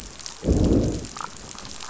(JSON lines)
{"label": "biophony, growl", "recorder": "SoundTrap 500"}